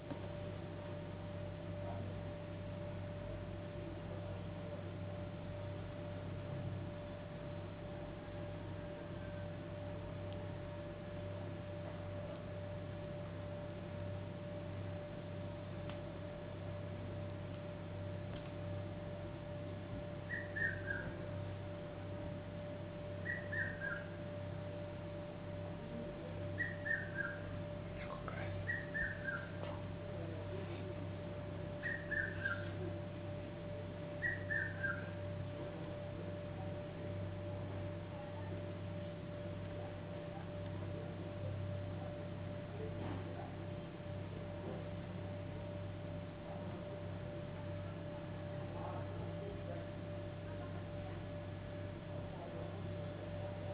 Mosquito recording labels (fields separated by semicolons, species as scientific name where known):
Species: no mosquito; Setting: insect culture